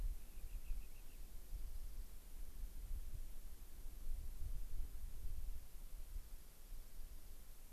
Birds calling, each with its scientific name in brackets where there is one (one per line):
Rock Wren (Salpinctes obsoletus)